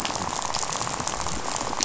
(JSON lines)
{"label": "biophony, rattle", "recorder": "SoundTrap 500"}